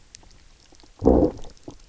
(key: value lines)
label: biophony, low growl
recorder: SoundTrap 300